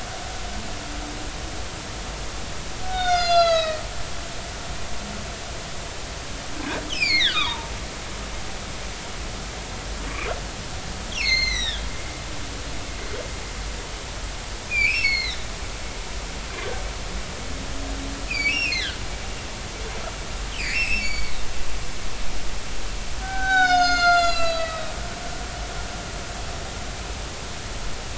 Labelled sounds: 2.8	3.8	humpback whale, 1.2 to 7.1 kHz
6.9	7.7	humpback whale, 0.86 to 7.2 kHz
11.1	11.9	humpback whale, 1.5 to 6.6 kHz
14.7	15.4	humpback whale, 1.9 to 4.5 kHz
18.3	19.0	humpback whale, 1.4 to 5.0 kHz
20.6	21.4	humpback whale, 1.7 to 5.5 kHz
23.2	25.0	humpback whale, 0.80 to 7.7 kHz

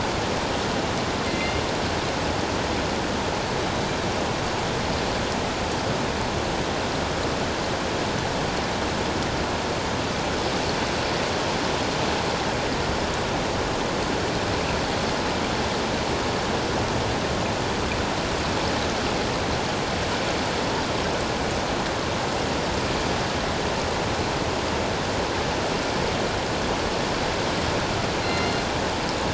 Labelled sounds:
1.3	1.6	killer whale, northern resident, G clan, 2.0 to 2.9 kHz
28.2	28.6	killer whale, northern resident, G clan, 2.0 to 4.3 kHz

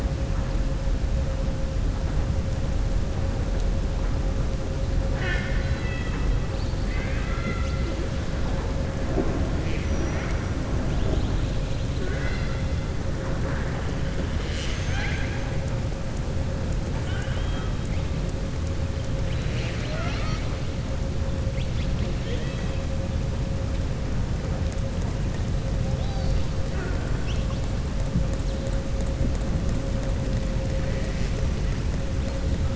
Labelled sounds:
5.0	7.8	killer whale, southern resident, 0.77 to 6.5 kHz
9.8	10.4	killer whale, southern resident, 5.6 to 6.7 kHz
12.0	12.6	killer whale, southern resident, 1.1 to 5.5 kHz
17.0	17.7	killer whale, southern resident, 0.74 to 3.9 kHz
19.2	20.5	killer whale, southern resident, 0.66 to 6.4 kHz

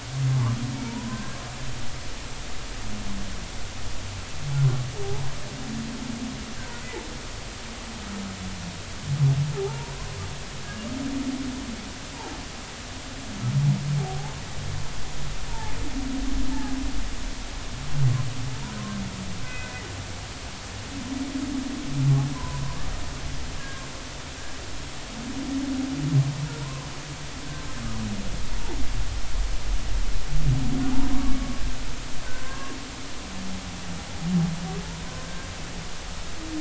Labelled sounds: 0.8	1.3	humpback whale, 0.86 to 1.1 kHz
2.1	2.4	humpback whale, 1.5 to 1.7 kHz
9.6	10.0	humpback whale, 0.80 to 1.0 kHz
14.0	14.3	humpback whale, 0.80 to 0.93 kHz
15.5	15.8	humpback whale, 0.80 to 0.96 kHz
16.5	16.8	humpback whale, 1.6 to 1.8 kHz
19.4	19.7	humpback whale, 2.0 to 2.1 kHz
22.3	22.6	humpback whale, 0.90 to 1.1 kHz
23.6	23.8	humpback whale, 1.6 to 1.7 kHz
26.6	26.9	humpback whale, 0.93 to 1.2 kHz
32.2	32.8	humpback whale, 0.93 to 1.7 kHz

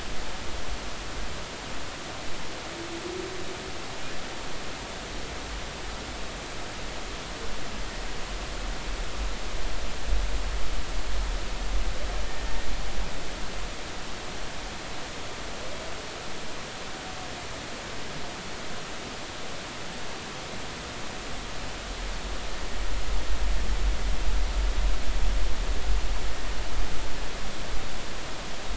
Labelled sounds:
12.3	12.6	humpback whale, 1.8 to 1.9 kHz

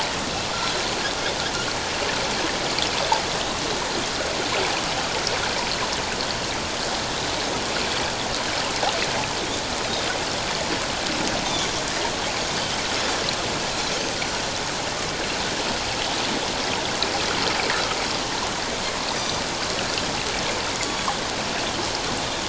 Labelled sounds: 19.1	19.4	Pacific white-sided dolphin, 4.7 to 6.1 kHz
20.8	21.0	Pacific white-sided dolphin, 6.7 to 6.9 kHz

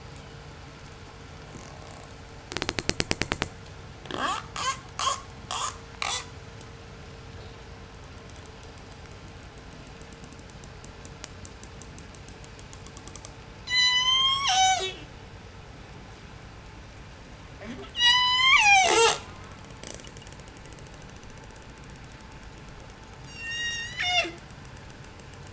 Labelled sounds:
0.0	0.5	killer whale, 2.8 to 3.6 kHz
2.4	3.5	killer whale, J pod, 0.07 to 8.0 kHz
4.0	6.4	killer whale, J pod, 0.11 to 8.0 kHz
13.5	15.2	killer whale, J pod, call S03, 0.21 to 8.0 kHz
17.9	19.5	killer whale, J pod, call S03, 0.21 to 8.0 kHz
23.0	24.6	killer whale, J pod, call S03, 0.23 to 8.0 kHz

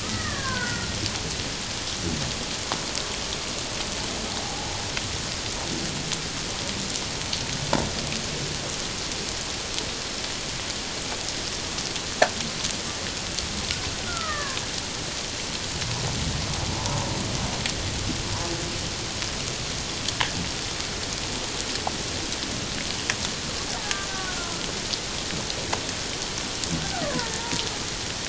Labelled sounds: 0.0	0.9	killer whale, Bigg's (transient), 0.94 to 2.0 kHz
4.4	4.7	killer whale, Bigg's (transient), 0.78 to 0.94 kHz
14.1	14.6	killer whale, Bigg's (transient), 1.0 to 2.0 kHz
16.7	17.0	killer whale, Bigg's (transient), 0.84 to 1.1 kHz
24.1	24.6	killer whale, Bigg's (transient), 1.3 to 1.6 kHz
27.4	27.7	killer whale, Bigg's (transient), 0.88 to 1.0 kHz

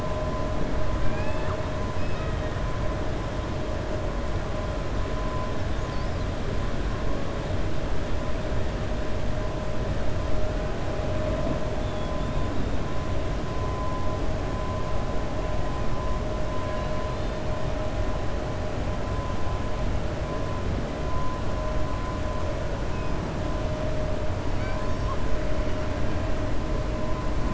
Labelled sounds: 1.0	1.6	killer whale, 0.80 to 4.4 kHz

